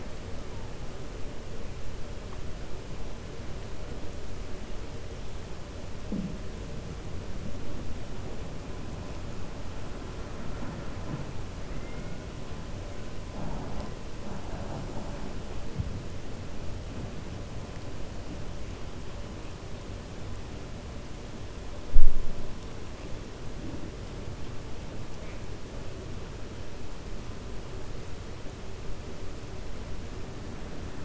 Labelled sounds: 11.7	12.1	killer whale, 1.4 to 2.8 kHz

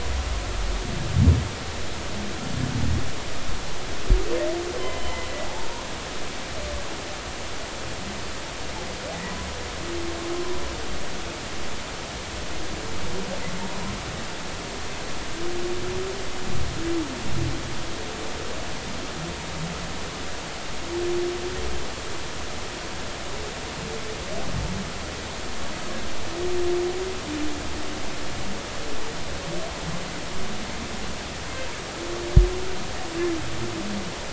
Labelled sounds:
4.8	5.7	humpback whale, 0.80 to 1.1 kHz

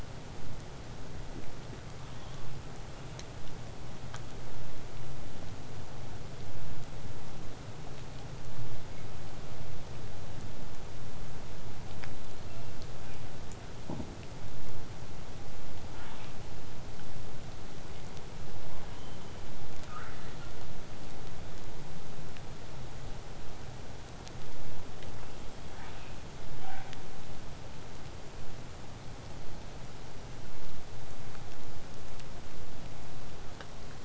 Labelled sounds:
12.3	13.5	killer whale, southern resident, 0.50 to 7.1 kHz
15.9	16.4	killer whale, southern resident, 0.58 to 4.3 kHz
17.9	18.2	killer whale, southern resident, 1.9 to 3.1 kHz
25.4	26.3	killer whale, southern resident, 0.73 to 3.9 kHz
26.6	27.0	killer whale, southern resident, 0.62 to 3.7 kHz

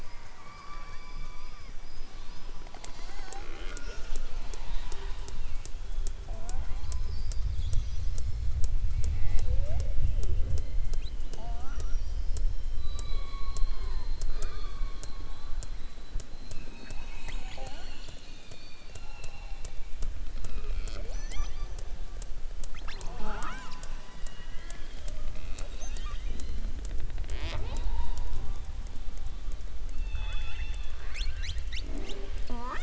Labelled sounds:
0.0	1.6	killer whale, southern resident, 0.77 to 2.4 kHz
14.2	15.2	killer whale, southern resident, 0.39 to 4.9 kHz
24.1	25.0	killer whale, southern resident, 1.4 to 3.4 kHz

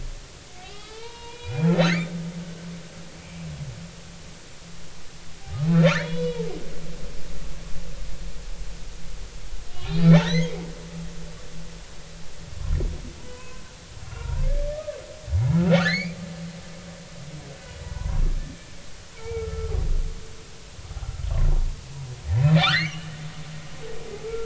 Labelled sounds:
0.6	2.0	humpback whale, 0.83 to 4.7 kHz
5.7	6.5	humpback whale, 0.80 to 4.0 kHz
9.9	10.5	humpback whale, 1.7 to 6.6 kHz
13.2	14.4	humpback whale, 0.93 to 1.5 kHz
14.7	15.0	humpback whale, 1.1 to 1.3 kHz
15.5	16.2	humpback whale, 1.1 to 6.9 kHz
17.8	18.2	humpback whale, 0.83 to 1.2 kHz
19.1	19.7	humpback whale, 0.83 to 2.4 kHz
22.6	23.2	humpback whale, 1.1 to 4.6 kHz

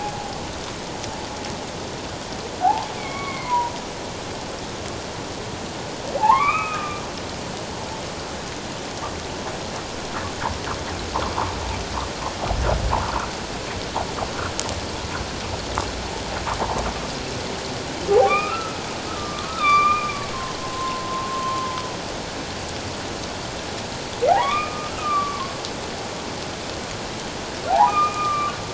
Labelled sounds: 2.6	3.7	humpback whale, 0.78 to 2.4 kHz
6.2	7.0	humpback whale, 0.78 to 2.6 kHz
18.1	18.8	humpback whale, 0.78 to 2.5 kHz
19.2	21.8	humpback whale, 0.84 to 3.8 kHz
24.3	25.5	humpback whale, 0.78 to 2.6 kHz
27.7	28.6	humpback whale, 0.78 to 2.5 kHz

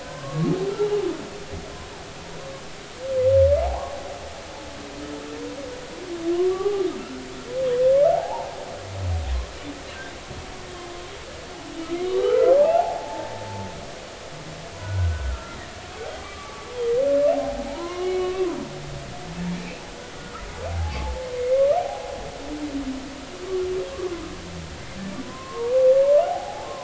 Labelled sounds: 0.0	0.5	humpback whale, 0.93 to 1.6 kHz
3.6	4.0	humpback whale, 0.80 to 1.2 kHz
6.3	6.9	humpback whale, 0.80 to 1.2 kHz
8.1	8.5	humpback whale, 0.80 to 1.0 kHz
12.0	13.3	humpback whale, 0.80 to 3.9 kHz
14.8	16.7	humpback whale, 1.0 to 1.6 kHz
17.3	18.6	humpback whale, 0.80 to 3.0 kHz
19.5	19.8	humpback whale, 2.2 to 2.7 kHz
20.7	22.1	humpback whale, 0.80 to 2.2 kHz
25.2	26.7	humpback whale, 0.80 to 1.2 kHz

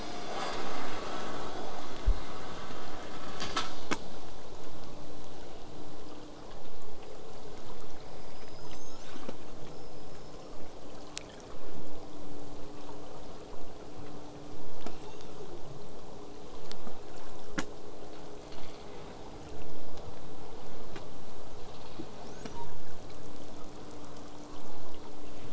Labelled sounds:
8.0	9.3	killer whale, southern resident, L pod, call S19, 0.31 to 8.0 kHz
9.6	10.5	killer whale, southern resident, whistle, 4.9 to 8.0 kHz
14.5	15.6	killer whale, southern resident, 2.2 to 8.0 kHz

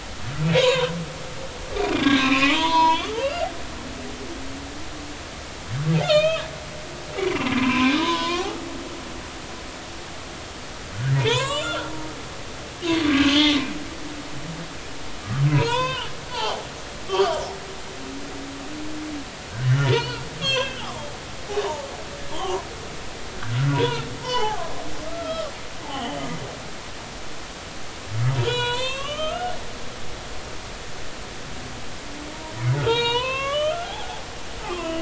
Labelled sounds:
0.5	0.9	humpback whale, 0.90 to 4.1 kHz
1.9	3.5	humpback whale, 0.83 to 6.3 kHz
6.0	6.5	humpback whale, 1.1 to 3.9 kHz
7.4	8.5	humpback whale, 0.90 to 4.4 kHz
11.2	11.9	humpback whale, 0.86 to 7.7 kHz
13.1	13.5	humpback whale, 1.4 to 3.2 kHz
15.5	17.4	humpback whale, 0.80 to 5.2 kHz
19.7	21.8	humpback whale, 0.80 to 6.0 kHz
22.3	22.7	humpback whale, 0.80 to 3.4 kHz
23.7	24.6	humpback whale, 0.80 to 5.7 kHz
25.1	26.3	humpback whale, 1.1 to 3.4 kHz
28.4	30.1	humpback whale, 0.90 to 4.4 kHz
32.8	35.0	humpback whale, 0.80 to 4.5 kHz

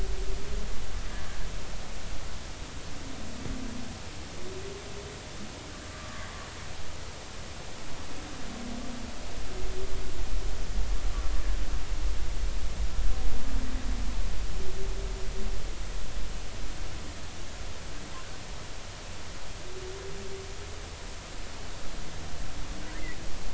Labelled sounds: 6.0	6.3	humpback whale, 1.1 to 1.3 kHz

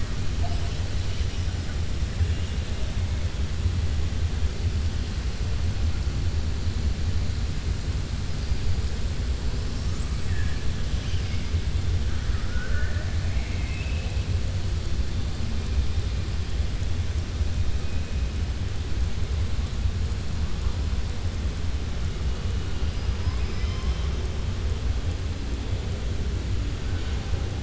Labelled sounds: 12.2	14.2	killer whale, southern resident, 0.53 to 3.3 kHz
23.1	24.1	killer whale, southern resident, 0.74 to 5.9 kHz

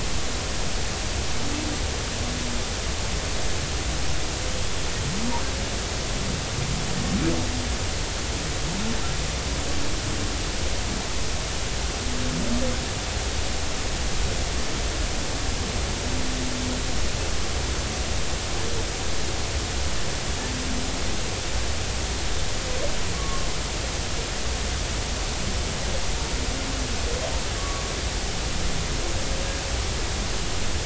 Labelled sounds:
23.1	23.5	humpback whale, 1.0 to 1.2 kHz
27.6	27.8	humpback whale, 1.1 to 1.2 kHz

